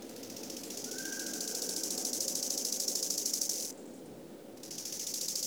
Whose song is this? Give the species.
Chorthippus biguttulus